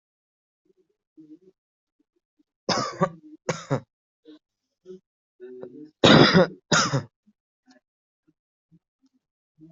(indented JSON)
{
  "expert_labels": [
    {
      "quality": "ok",
      "cough_type": "dry",
      "dyspnea": false,
      "wheezing": false,
      "stridor": false,
      "choking": false,
      "congestion": false,
      "nothing": true,
      "diagnosis": "lower respiratory tract infection",
      "severity": "mild"
    }
  ],
  "age": 19,
  "gender": "female",
  "respiratory_condition": true,
  "fever_muscle_pain": true,
  "status": "healthy"
}